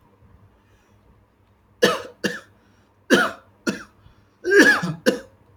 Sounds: Cough